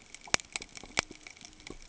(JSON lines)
{"label": "ambient", "recorder": "HydroMoth"}